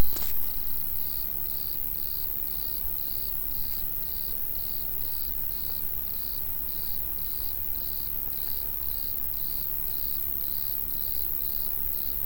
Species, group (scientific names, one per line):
Eumodicogryllus bordigalensis
Orthoptera